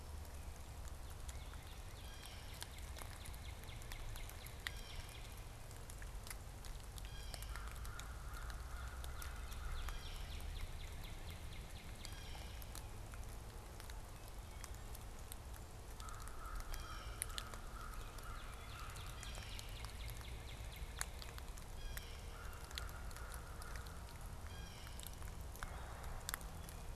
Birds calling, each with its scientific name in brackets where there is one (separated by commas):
American Crow (Corvus brachyrhynchos), Blue Jay (Cyanocitta cristata), Northern Cardinal (Cardinalis cardinalis)